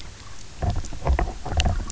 {"label": "biophony, knock croak", "recorder": "SoundTrap 300"}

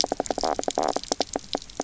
{"label": "biophony, knock croak", "recorder": "SoundTrap 300"}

